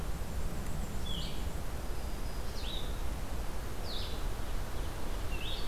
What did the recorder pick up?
Blue-headed Vireo, Black-and-white Warbler, Black-throated Green Warbler